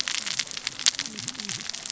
{"label": "biophony, cascading saw", "recorder": "SoundTrap 600 or HydroMoth"}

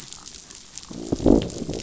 {"label": "biophony, growl", "recorder": "SoundTrap 500"}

